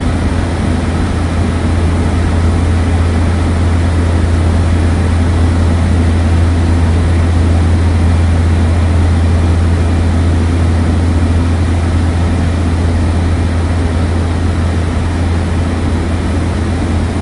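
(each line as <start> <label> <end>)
0.0 A loud and constant engine noise. 17.2
0.0 An aircraft flies overhead loudly. 17.2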